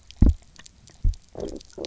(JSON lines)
{"label": "biophony, low growl", "recorder": "SoundTrap 300"}